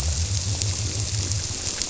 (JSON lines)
{"label": "biophony", "recorder": "SoundTrap 300"}